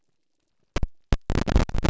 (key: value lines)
label: biophony
recorder: SoundTrap 300